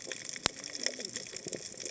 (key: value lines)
label: biophony, cascading saw
recorder: HydroMoth